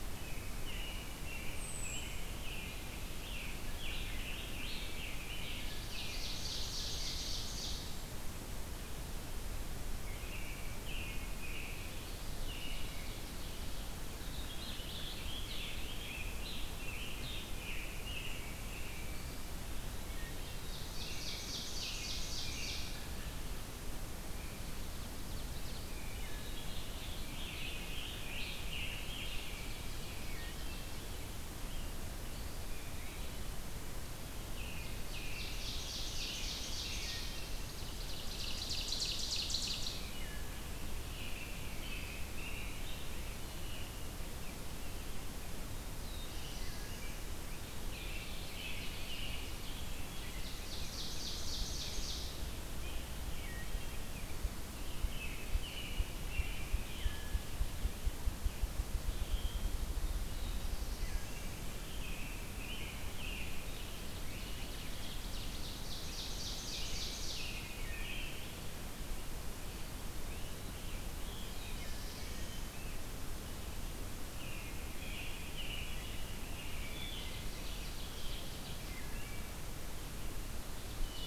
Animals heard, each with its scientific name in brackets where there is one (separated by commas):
Ovenbird (Seiurus aurocapilla), American Robin (Turdus migratorius), Black-throated Blue Warbler (Setophaga caerulescens), Wood Thrush (Hylocichla mustelina), Scarlet Tanager (Piranga olivacea), Ruffed Grouse (Bonasa umbellus)